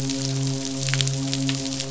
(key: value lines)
label: biophony, midshipman
recorder: SoundTrap 500